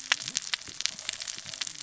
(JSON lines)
{"label": "biophony, cascading saw", "recorder": "SoundTrap 600 or HydroMoth"}